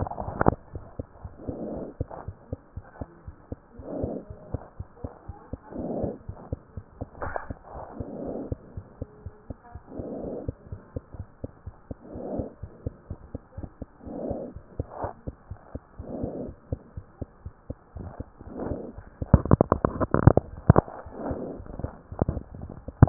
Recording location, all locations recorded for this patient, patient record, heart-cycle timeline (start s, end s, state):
mitral valve (MV)
pulmonary valve (PV)+tricuspid valve (TV)+mitral valve (MV)
#Age: Child
#Sex: Female
#Height: 78.0 cm
#Weight: 11.9 kg
#Pregnancy status: False
#Murmur: Absent
#Murmur locations: nan
#Most audible location: nan
#Systolic murmur timing: nan
#Systolic murmur shape: nan
#Systolic murmur grading: nan
#Systolic murmur pitch: nan
#Systolic murmur quality: nan
#Diastolic murmur timing: nan
#Diastolic murmur shape: nan
#Diastolic murmur grading: nan
#Diastolic murmur pitch: nan
#Diastolic murmur quality: nan
#Outcome: Normal
#Campaign: 2015 screening campaign
0.00	2.25	unannotated
2.25	2.34	S1
2.34	2.48	systole
2.48	2.57	S2
2.57	2.73	diastole
2.73	2.83	S1
2.83	2.99	systole
2.99	3.06	S2
3.06	3.25	diastole
3.25	3.34	S1
3.34	3.47	systole
3.47	3.57	S2
3.57	3.77	diastole
3.77	3.84	S1
3.84	4.02	systole
4.02	4.07	S2
4.07	4.27	diastole
4.27	4.34	S1
4.34	4.51	systole
4.51	4.59	S2
4.59	4.77	diastole
4.77	4.84	S1
4.84	5.02	systole
5.02	5.09	S2
5.09	5.28	diastole
5.28	5.33	S1
5.33	5.51	systole
5.51	5.58	S2
5.58	6.28	unannotated
6.28	6.33	S1
6.33	6.50	systole
6.50	6.57	S2
6.57	6.74	diastole
6.74	6.83	S1
6.83	6.99	systole
6.99	7.06	S2
7.06	23.09	unannotated